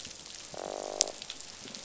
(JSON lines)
{"label": "biophony, croak", "recorder": "SoundTrap 500"}